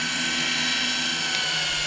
{"label": "anthrophony, boat engine", "recorder": "SoundTrap 300"}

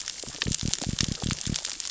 {"label": "biophony", "recorder": "SoundTrap 600 or HydroMoth"}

